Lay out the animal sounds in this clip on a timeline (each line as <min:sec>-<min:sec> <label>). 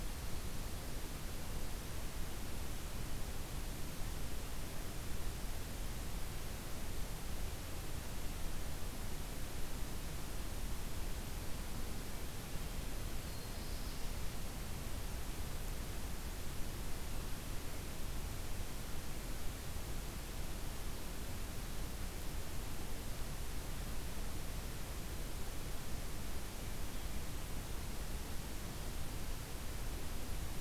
0:13.0-0:14.2 Black-throated Blue Warbler (Setophaga caerulescens)